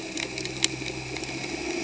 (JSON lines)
{"label": "anthrophony, boat engine", "recorder": "HydroMoth"}